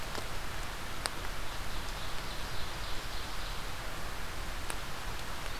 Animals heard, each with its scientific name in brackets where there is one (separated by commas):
Ovenbird (Seiurus aurocapilla)